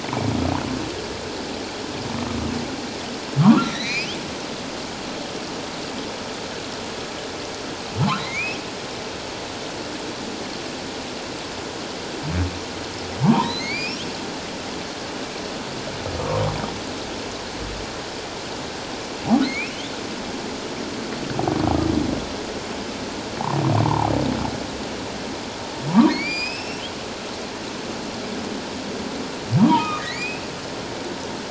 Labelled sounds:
3.4	4.1	humpback whale, 0.91 to 6.0 kHz
8.2	8.6	humpback whale, 1.9 to 2.8 kHz
13.2	14.0	humpback whale, 0.78 to 5.0 kHz
19.5	19.7	humpback whale, 2.0 to 2.8 kHz
23.8	24.1	humpback whale, 0.78 to 1.2 kHz
25.9	26.8	humpback whale, 0.84 to 7.6 kHz
29.6	30.5	humpback whale, 0.84 to 7.6 kHz

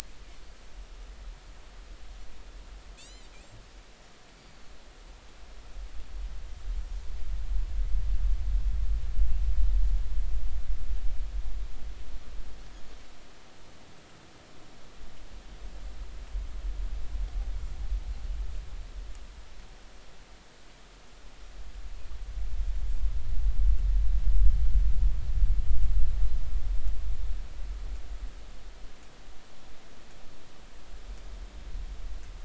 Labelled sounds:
3.0	3.3	Pacific white-sided dolphin, 2.4 to 8.0 kHz

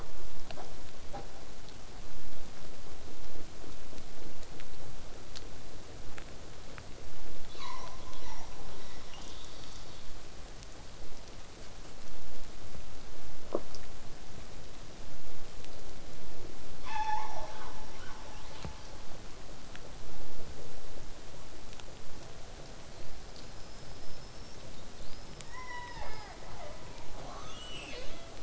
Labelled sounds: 7.5	10.1	killer whale, southern resident, 0.54 to 7.2 kHz
16.8	18.9	killer whale, southern resident, 0.58 to 7.7 kHz
20.5	22.9	killer whale, southern resident, 7.8 to 8.0 kHz
22.8	26.4	killer whale, southern resident, whistle, 3.3 to 5.8 kHz
25.5	28.4	killer whale, southern resident, 0.15 to 8.0 kHz

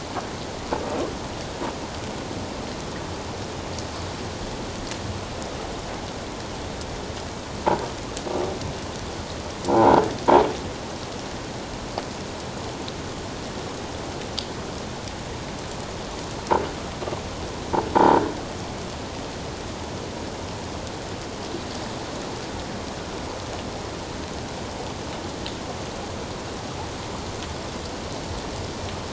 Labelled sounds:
9.7	10.0	croaking sound likely from a nearby submerged object, 0.78 to 1.1 kHz
17.9	18.2	croaking sound likely from a nearby submerged object, 0.78 to 1.0 kHz

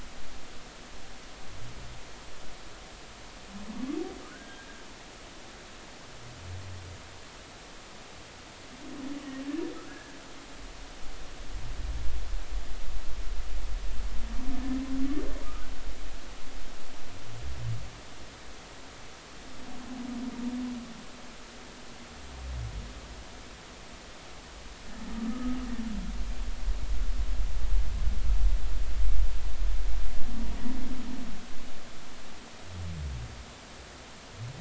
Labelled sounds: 4.2	4.7	humpback whale, 1.2 to 1.7 kHz
9.9	10.2	humpback whale, 1.5 to 1.8 kHz
25.3	25.6	humpback whale, 1.2 to 1.3 kHz

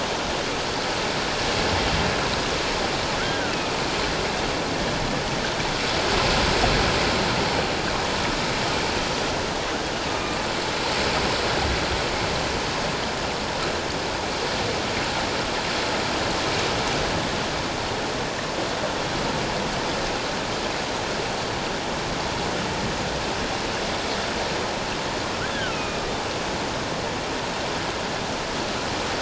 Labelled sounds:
3.2	3.8	killer whale, northern resident, A clan, AA subclan, A01 pod, 1.3 to 2.7 kHz
25.5	26.0	killer whale, northern resident, A clan, AA subclan, A01 pod, 1.2 to 3.5 kHz

